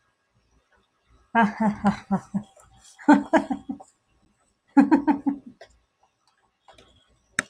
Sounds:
Laughter